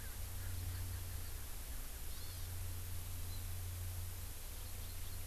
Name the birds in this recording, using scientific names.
Pternistis erckelii, Chlorodrepanis virens